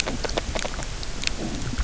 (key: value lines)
label: biophony, grazing
recorder: SoundTrap 300